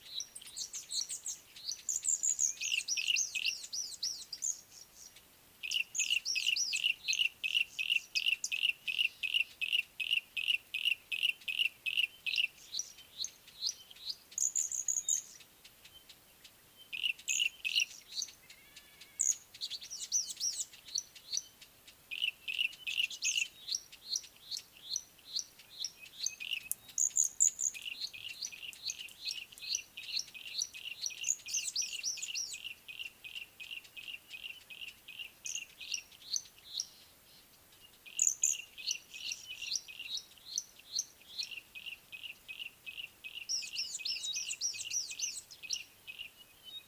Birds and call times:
Red-fronted Prinia (Prinia rufifrons): 1.1s, 3.9s, 6.3s, 14.9s, 17.4s, 20.3s, 24.6s, 27.4s, 31.9s, 38.3s, 44.7s
Yellow-breasted Apalis (Apalis flavida): 3.1s, 9.4s, 17.1s, 22.6s, 29.4s, 34.1s

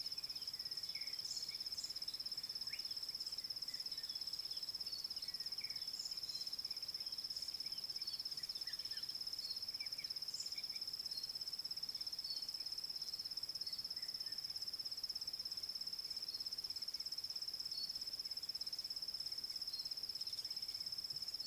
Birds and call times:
Slate-colored Boubou (Laniarius funebris): 2.8s

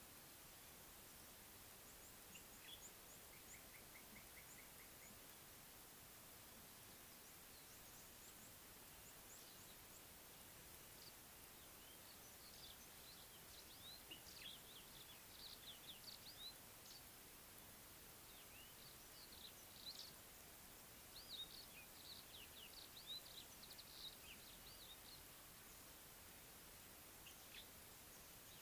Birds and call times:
Slate-colored Boubou (Laniarius funebris): 3.9s

